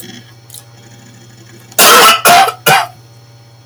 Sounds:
Cough